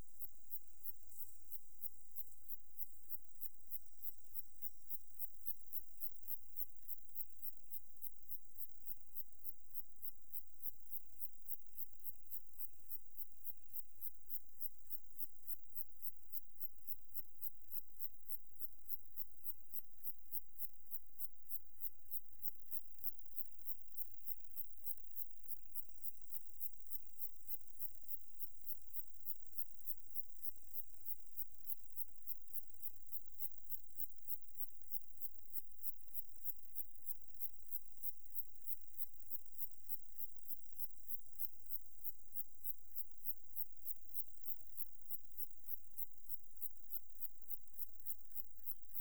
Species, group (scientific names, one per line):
Conocephalus fuscus
Orthoptera